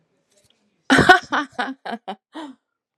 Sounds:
Laughter